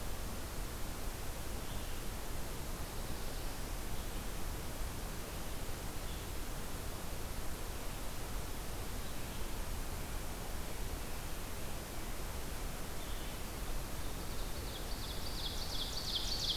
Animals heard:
Red-eyed Vireo (Vireo olivaceus), Ovenbird (Seiurus aurocapilla)

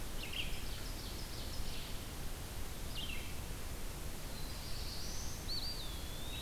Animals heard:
Eastern Wood-Pewee (Contopus virens), Ovenbird (Seiurus aurocapilla), Red-eyed Vireo (Vireo olivaceus), Black-throated Blue Warbler (Setophaga caerulescens)

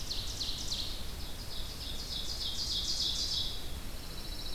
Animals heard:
Ovenbird (Seiurus aurocapilla), Pine Warbler (Setophaga pinus), Red-eyed Vireo (Vireo olivaceus)

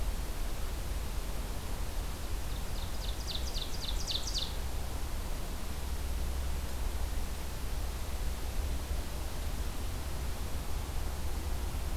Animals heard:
Ovenbird (Seiurus aurocapilla)

